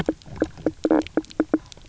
{"label": "biophony, knock croak", "recorder": "SoundTrap 300"}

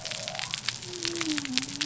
{"label": "biophony", "recorder": "SoundTrap 300"}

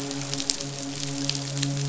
{"label": "biophony, midshipman", "recorder": "SoundTrap 500"}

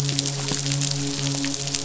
{"label": "biophony, midshipman", "recorder": "SoundTrap 500"}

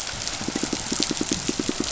{"label": "biophony, pulse", "recorder": "SoundTrap 500"}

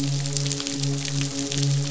{"label": "biophony, midshipman", "recorder": "SoundTrap 500"}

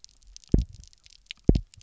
{"label": "biophony, double pulse", "recorder": "SoundTrap 300"}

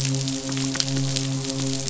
{"label": "biophony, midshipman", "recorder": "SoundTrap 500"}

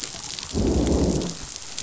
{"label": "biophony, growl", "recorder": "SoundTrap 500"}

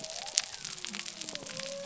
{"label": "biophony", "recorder": "SoundTrap 300"}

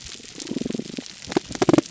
{"label": "biophony", "recorder": "SoundTrap 300"}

